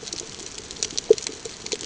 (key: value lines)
label: ambient
recorder: HydroMoth